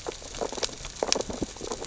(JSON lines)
{"label": "biophony, sea urchins (Echinidae)", "recorder": "SoundTrap 600 or HydroMoth"}